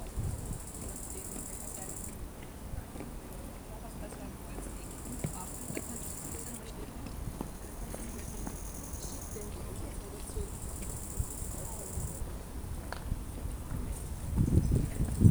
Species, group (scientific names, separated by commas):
Chorthippus biguttulus, Orthoptera